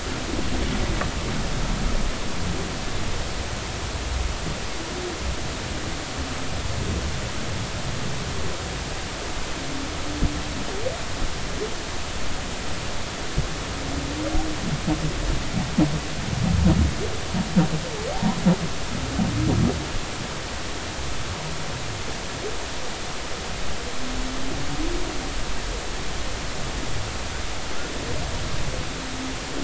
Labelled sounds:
18.1	18.4	humpback whale, 0.80 to 1.1 kHz

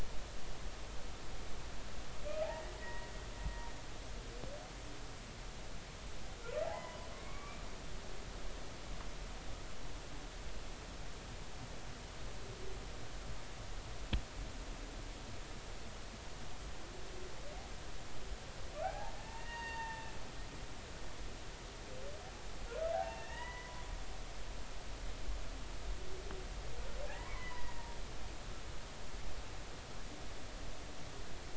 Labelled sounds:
2.5	3.1	humpback whale, 1.8 to 2.0 kHz
6.6	7.6	humpback whale, 0.80 to 3.1 kHz
18.8	20.2	humpback whale, 0.80 to 4.7 kHz
22.9	23.8	humpback whale, 0.80 to 3.0 kHz
27.0	27.9	humpback whale, 0.80 to 2.1 kHz

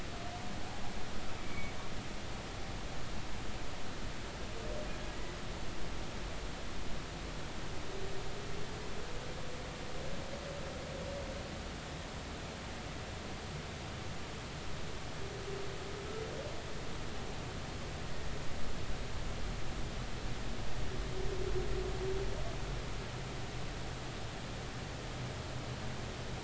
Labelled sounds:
1.4	1.7	humpback whale, 2.2 to 2.4 kHz

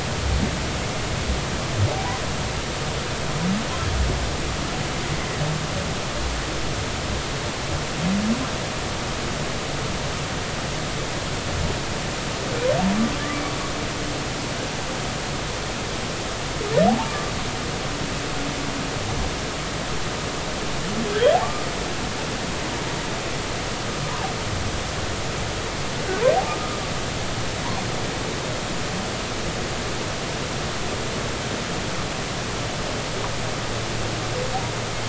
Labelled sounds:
16.9	17.1	humpback whale, 0.80 to 0.96 kHz

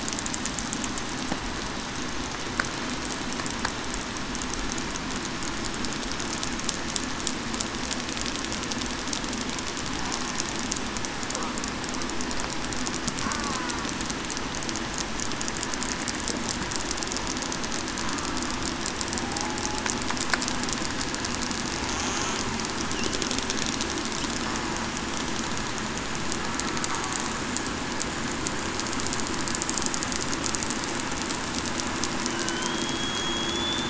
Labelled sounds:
13.3	13.7	killer whale, southern resident, 0.96 to 1.2 kHz
32.3	33.8	killer whale, southern resident, 1.4 to 3.6 kHz

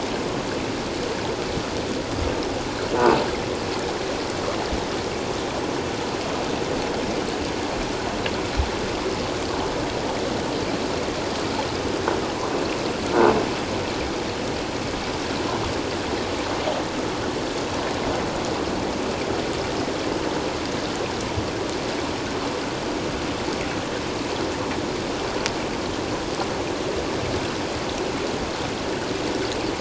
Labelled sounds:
13.1	13.3	croaking sound likely from a nearby submerged object, 1.3 to 1.6 kHz

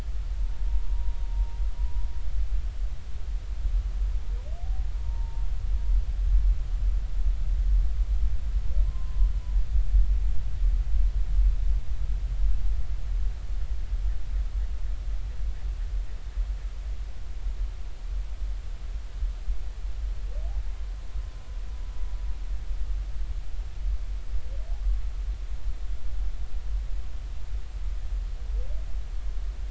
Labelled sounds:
0.7	2.0	humpback whale, 0.86 to 1.0 kHz
5.0	5.4	humpback whale, 0.86 to 0.99 kHz
8.8	9.3	humpback whale, 0.96 to 1.1 kHz

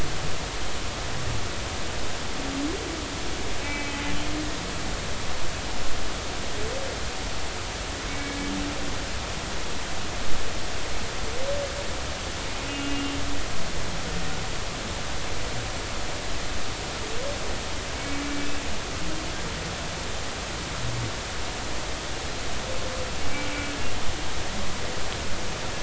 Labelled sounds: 3.6	4.0	humpback whale, 2.0 to 2.7 kHz
8.1	8.4	humpback whale, 2.1 to 2.3 kHz
12.7	13.2	humpback whale, 2.8 to 2.9 kHz
18.2	18.5	humpback whale, 2.3 to 2.4 kHz
18.9	19.2	humpback whale, 2.2 to 2.3 kHz

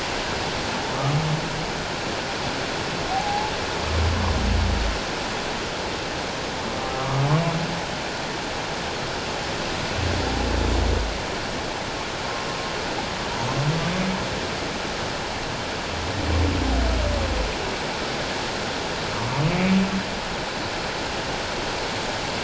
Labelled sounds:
0.9	1.2	humpback whale, 1.0 to 1.3 kHz
3.1	3.5	humpback whale, 0.78 to 0.94 kHz
6.9	7.3	humpback whale, 1.0 to 1.3 kHz

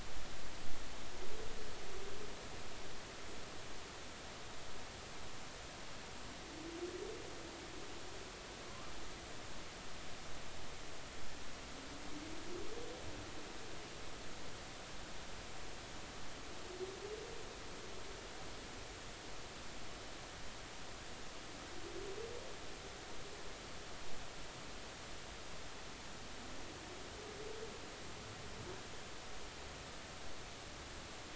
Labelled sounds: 8.7	8.9	humpback whale, 0.99 to 1.3 kHz

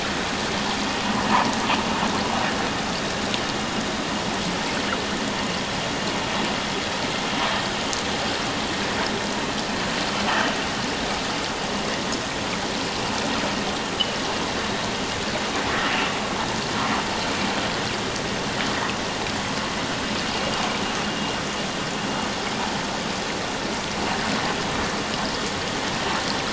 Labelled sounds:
1.3	1.5	vessel noise, 0.78 to 1.3 kHz
10.3	10.5	vessel noise, 2.9 to 3.1 kHz

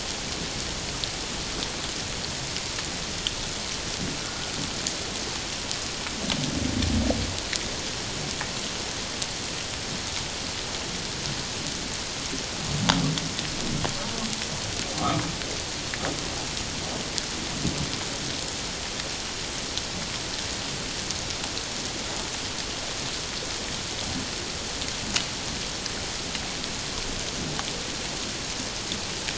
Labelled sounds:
4.2	4.5	humpback whale, 1.3 to 1.5 kHz

